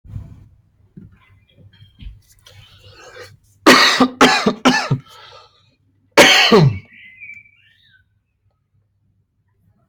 {"expert_labels": [{"quality": "good", "cough_type": "dry", "dyspnea": false, "wheezing": false, "stridor": false, "choking": false, "congestion": false, "nothing": true, "diagnosis": "healthy cough", "severity": "pseudocough/healthy cough"}], "age": 28, "gender": "male", "respiratory_condition": false, "fever_muscle_pain": false, "status": "symptomatic"}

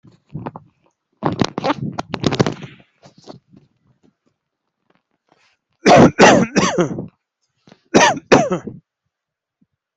{"expert_labels": [{"quality": "ok", "cough_type": "dry", "dyspnea": false, "wheezing": false, "stridor": false, "choking": false, "congestion": false, "nothing": true, "diagnosis": "upper respiratory tract infection", "severity": "mild"}], "age": 38, "gender": "male", "respiratory_condition": true, "fever_muscle_pain": false, "status": "healthy"}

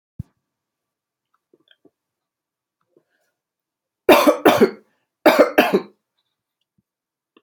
{"expert_labels": [{"quality": "good", "cough_type": "dry", "dyspnea": false, "wheezing": false, "stridor": false, "choking": false, "congestion": false, "nothing": true, "diagnosis": "upper respiratory tract infection", "severity": "mild"}], "age": 44, "gender": "female", "respiratory_condition": true, "fever_muscle_pain": false, "status": "COVID-19"}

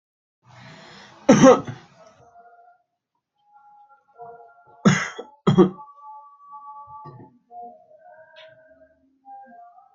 {"expert_labels": [{"quality": "ok", "cough_type": "dry", "dyspnea": false, "wheezing": false, "stridor": false, "choking": false, "congestion": false, "nothing": true, "diagnosis": "healthy cough", "severity": "pseudocough/healthy cough"}], "age": 28, "gender": "male", "respiratory_condition": true, "fever_muscle_pain": true, "status": "symptomatic"}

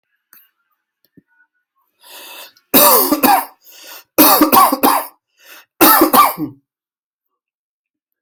{"expert_labels": [{"quality": "good", "cough_type": "dry", "dyspnea": false, "wheezing": false, "stridor": false, "choking": false, "congestion": false, "nothing": true, "diagnosis": "lower respiratory tract infection", "severity": "mild"}], "age": 37, "gender": "male", "respiratory_condition": false, "fever_muscle_pain": false, "status": "symptomatic"}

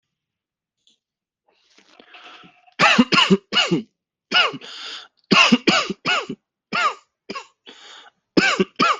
{"expert_labels": [{"quality": "good", "cough_type": "dry", "dyspnea": false, "wheezing": false, "stridor": false, "choking": false, "congestion": false, "nothing": true, "diagnosis": "upper respiratory tract infection", "severity": "mild"}], "age": 28, "gender": "male", "respiratory_condition": false, "fever_muscle_pain": false, "status": "symptomatic"}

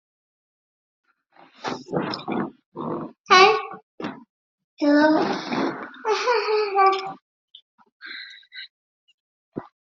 {"expert_labels": [{"quality": "no cough present", "cough_type": "unknown", "dyspnea": false, "wheezing": false, "stridor": false, "choking": false, "congestion": false, "nothing": true, "diagnosis": "healthy cough", "severity": "pseudocough/healthy cough"}]}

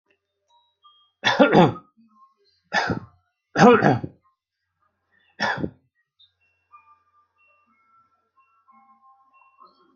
{"expert_labels": [{"quality": "ok", "cough_type": "dry", "dyspnea": false, "wheezing": false, "stridor": false, "choking": false, "congestion": false, "nothing": true, "diagnosis": "healthy cough", "severity": "mild"}], "age": 40, "gender": "male", "respiratory_condition": true, "fever_muscle_pain": false, "status": "symptomatic"}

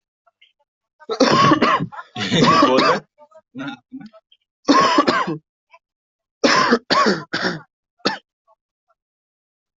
{"expert_labels": [{"quality": "ok", "cough_type": "wet", "dyspnea": false, "wheezing": false, "stridor": false, "choking": false, "congestion": false, "nothing": true, "diagnosis": "COVID-19", "severity": "mild"}], "age": 22, "gender": "male", "respiratory_condition": false, "fever_muscle_pain": false, "status": "COVID-19"}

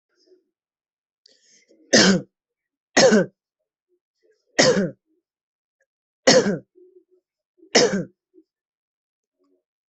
{"expert_labels": [{"quality": "good", "cough_type": "dry", "dyspnea": false, "wheezing": false, "stridor": false, "choking": false, "congestion": false, "nothing": true, "diagnosis": "COVID-19", "severity": "mild"}], "age": 29, "gender": "male", "respiratory_condition": true, "fever_muscle_pain": false, "status": "symptomatic"}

